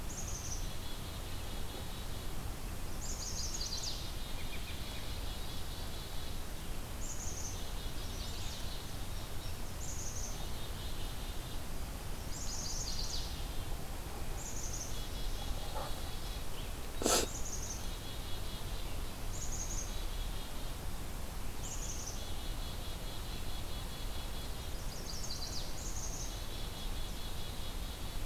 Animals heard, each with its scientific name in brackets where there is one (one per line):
Black-capped Chickadee (Poecile atricapillus)
Chestnut-sided Warbler (Setophaga pensylvanica)
American Robin (Turdus migratorius)
Indigo Bunting (Passerina cyanea)